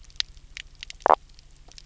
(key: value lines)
label: biophony
recorder: SoundTrap 300